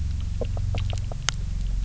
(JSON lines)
{"label": "anthrophony, boat engine", "recorder": "SoundTrap 300"}
{"label": "biophony", "recorder": "SoundTrap 300"}